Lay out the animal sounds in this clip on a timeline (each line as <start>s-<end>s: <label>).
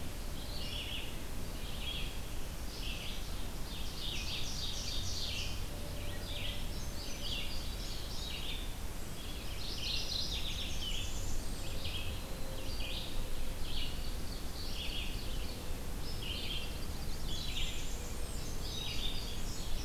0.0s-17.9s: Red-eyed Vireo (Vireo olivaceus)
3.7s-5.7s: Ovenbird (Seiurus aurocapilla)
5.9s-6.8s: Wood Thrush (Hylocichla mustelina)
6.6s-8.8s: Indigo Bunting (Passerina cyanea)
9.5s-11.1s: Mourning Warbler (Geothlypis philadelphia)
10.2s-11.7s: Blackburnian Warbler (Setophaga fusca)
14.2s-15.6s: Ovenbird (Seiurus aurocapilla)
16.3s-17.6s: Common Yellowthroat (Geothlypis trichas)
17.0s-18.7s: Blackburnian Warbler (Setophaga fusca)
17.8s-19.8s: Indigo Bunting (Passerina cyanea)
18.6s-19.8s: Red-eyed Vireo (Vireo olivaceus)